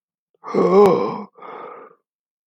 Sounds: Sigh